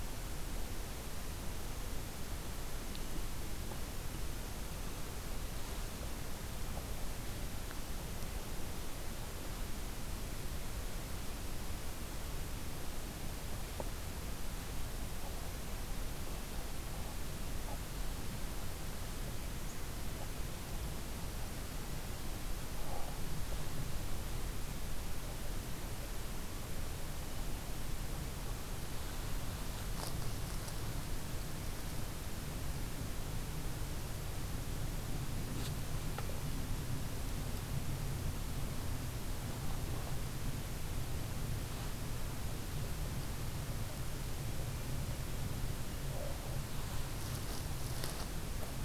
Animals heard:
forest ambience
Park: Katahdin Woods and Waters National Monument